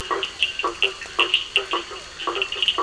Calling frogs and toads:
blacksmith tree frog (Boana faber), two-colored oval frog (Elachistocleis bicolor), Scinax perereca, Cochran's lime tree frog (Sphaenorhynchus surdus)
Atlantic Forest, 9:00pm

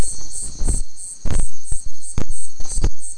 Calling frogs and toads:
none
Atlantic Forest, 11:15pm

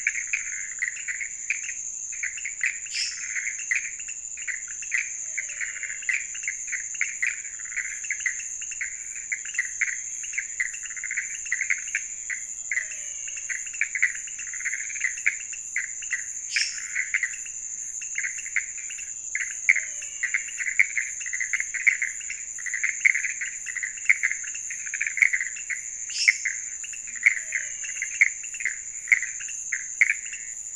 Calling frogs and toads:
pointedbelly frog (Leptodactylus podicipinus), Pithecopus azureus, lesser tree frog (Dendropsophus minutus), menwig frog (Physalaemus albonotatus)
Cerrado, 2:30am

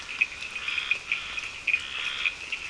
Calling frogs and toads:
Scinax perereca, Cochran's lime tree frog (Sphaenorhynchus surdus)
Atlantic Forest, 4:30am

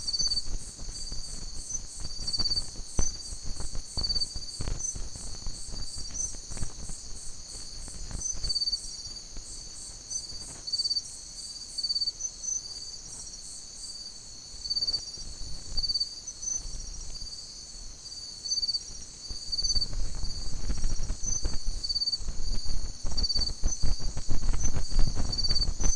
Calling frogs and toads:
none
Atlantic Forest, 1:00am

